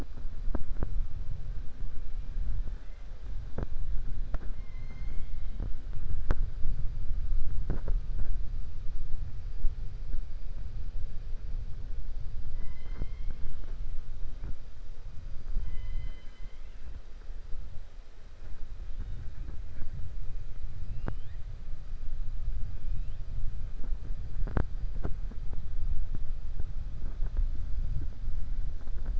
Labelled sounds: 4.3	5.5	killer whale, 1.1 to 7.4 kHz

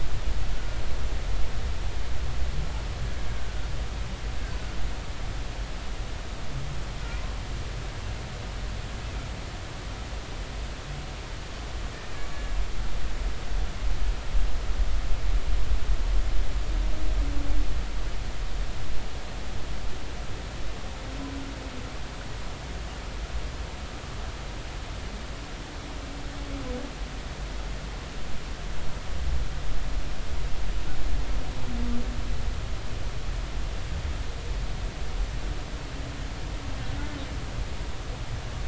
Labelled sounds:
3.4	3.6	humpback whale, 1.4 to 1.6 kHz
12.3	12.6	humpback whale, 1.6 to 1.8 kHz

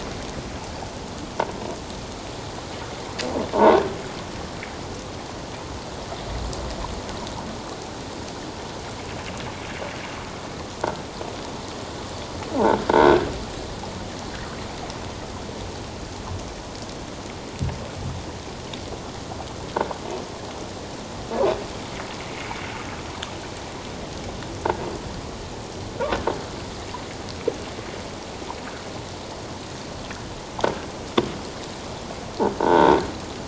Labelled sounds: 3.5	3.9	croaking sound likely from a nearby submerged object, 0.84 to 1.8 kHz
12.9	13.3	croaking sound likely from a nearby submerged object, 1.4 to 1.7 kHz
32.6	32.9	croaking sound likely from a nearby submerged object, 0.84 to 1.6 kHz

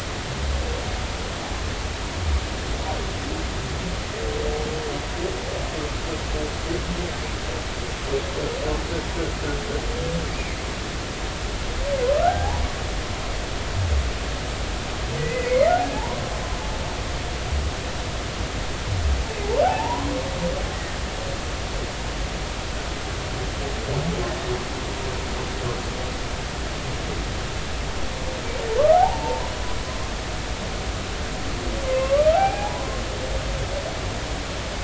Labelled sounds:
12.1	12.6	humpback whale, 0.80 to 1.7 kHz
15.2	16.2	humpback whale, 0.80 to 2.6 kHz
19.6	20.1	humpback whale, 0.80 to 1.1 kHz
28.9	29.5	humpback whale, 0.80 to 1.0 kHz
31.8	33.0	humpback whale, 0.80 to 2.5 kHz

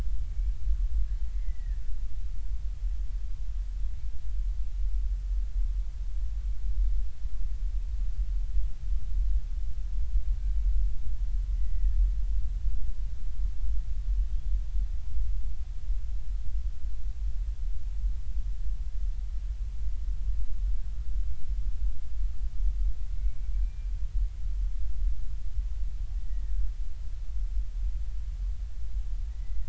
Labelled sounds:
1.3	1.8	killer whale, Bigg's (transient), 1.7 to 2.2 kHz
11.6	12.0	killer whale, Bigg's (transient), 1.7 to 2.1 kHz
23.2	23.9	killer whale, Bigg's (transient), 2.1 to 2.4 kHz
26.2	26.7	killer whale, Bigg's (transient), 1.4 to 2.0 kHz
29.3	29.6	killer whale, Bigg's (transient), 1.9 to 2.1 kHz

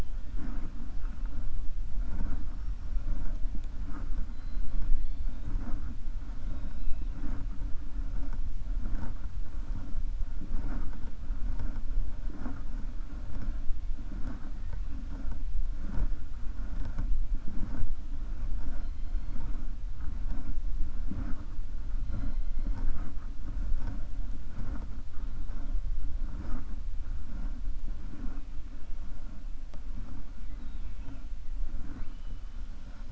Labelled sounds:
4.2	4.8	killer whale, 3.1 to 5.1 kHz
18.6	19.4	killer whale, 3.2 to 5.7 kHz

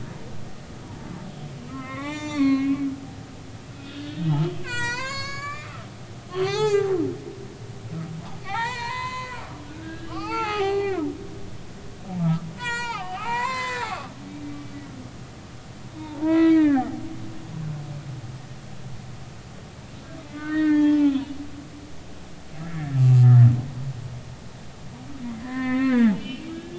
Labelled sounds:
0.8	1.1	humpback whale, 0.83 to 0.99 kHz
1.7	2.9	humpback whale, 0.80 to 7.3 kHz
3.7	4.3	humpback whale, 1.3 to 3.7 kHz
4.6	5.7	humpback whale, 0.90 to 8.0 kHz
6.3	6.9	humpback whale, 0.80 to 7.8 kHz
8.4	9.4	humpback whale, 0.80 to 8.0 kHz
9.8	11.1	humpback whale, 0.80 to 5.2 kHz
12.2	13.9	humpback whale, 0.80 to 7.8 kHz
16.0	16.9	humpback whale, 0.80 to 4.0 kHz
20.3	21.4	humpback whale, 0.83 to 4.4 kHz
22.6	23.2	humpback whale, 1.6 to 2.8 kHz
25.4	26.7	humpback whale, 0.80 to 3.8 kHz

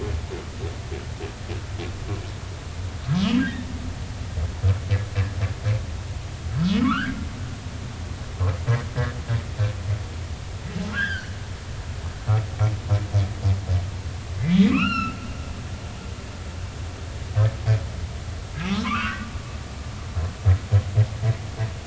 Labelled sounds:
3.0	3.7	humpback whale, 1.1 to 3.8 kHz
6.8	7.1	humpback whale, 1.0 to 1.8 kHz
10.9	11.4	humpback whale, 1.2 to 3.6 kHz
14.7	15.2	humpback whale, 1.0 to 5.7 kHz
18.6	19.3	humpback whale, 0.96 to 1.6 kHz

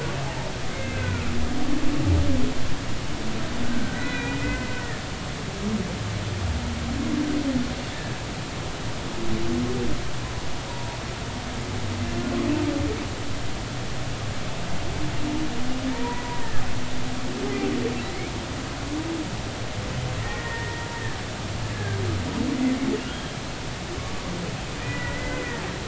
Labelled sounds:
0.7	1.2	humpback whale, 1.3 to 2.2 kHz
3.6	4.7	humpback whale, 1.4 to 4.0 kHz
7.9	8.2	humpback whale, 1.6 to 1.8 kHz
10.7	11.0	humpback whale, 0.80 to 1.0 kHz
15.9	16.4	humpback whale, 0.90 to 2.0 kHz
20.2	20.9	humpback whale, 1.8 to 2.0 kHz
21.7	22.0	humpback whale, 1.5 to 1.8 kHz
23.1	23.3	humpback whale, 3.1 to 3.3 kHz
24.8	25.6	humpback whale, 1.8 to 2.1 kHz

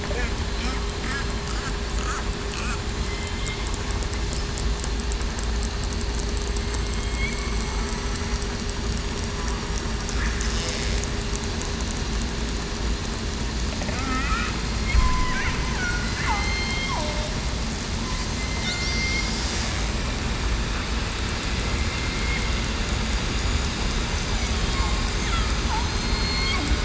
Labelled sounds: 3.1	3.5	killer whale, southern resident, 3.1 to 3.2 kHz
6.8	7.3	killer whale, southern resident, 2.1 to 2.3 kHz
13.9	14.4	killer whale, southern resident, 1.2 to 1.5 kHz
14.9	15.3	killer whale, southern resident, 0.98 to 1.1 kHz
16.2	16.9	killer whale, southern resident, 2.0 to 4.3 kHz
18.4	19.2	killer whale, southern resident, 2.0 to 2.2 kHz
25.7	26.5	killer whale, southern resident, 4.1 to 6.4 kHz

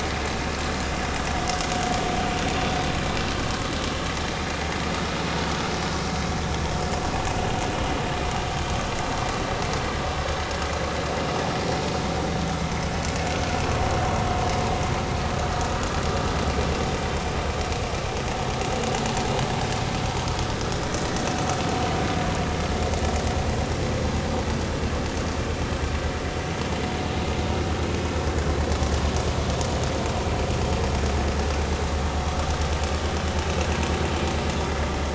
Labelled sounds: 34.7	34.9	vessel noise, 1.9 to 2.1 kHz

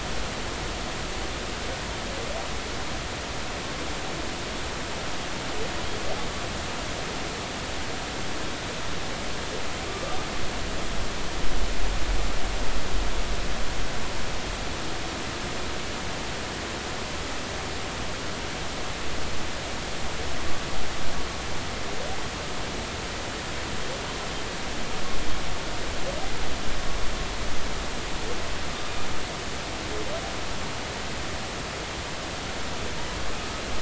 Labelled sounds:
9.9	10.2	humpback whale, 1.1 to 1.2 kHz

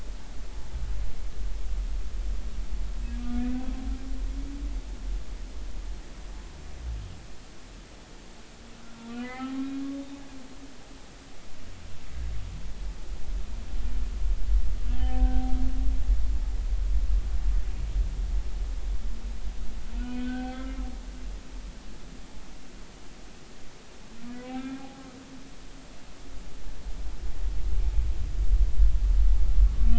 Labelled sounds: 8.8	10.2	humpback whale, 0.80 to 3.8 kHz
14.9	15.6	humpback whale, 0.80 to 1.9 kHz
19.9	20.8	humpback whale, 0.80 to 3.2 kHz
24.4	25.0	humpback whale, 0.80 to 2.7 kHz

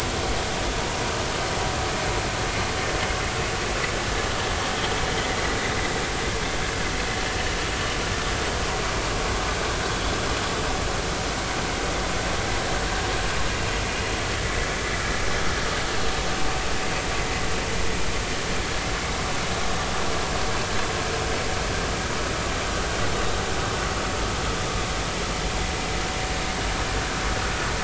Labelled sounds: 9.9	10.1	vessel noise, 3.3 to 3.5 kHz

